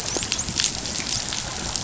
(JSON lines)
{"label": "biophony, dolphin", "recorder": "SoundTrap 500"}